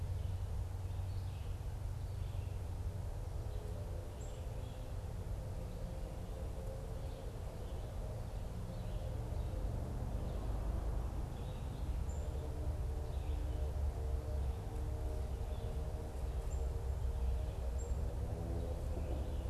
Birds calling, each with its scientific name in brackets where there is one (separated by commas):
Red-eyed Vireo (Vireo olivaceus), Black-capped Chickadee (Poecile atricapillus)